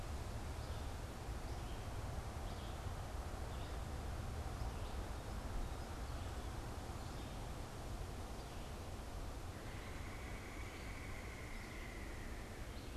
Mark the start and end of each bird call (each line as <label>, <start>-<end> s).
Song Sparrow (Melospiza melodia), 0.0-13.0 s
Red-bellied Woodpecker (Melanerpes carolinus), 9.4-13.0 s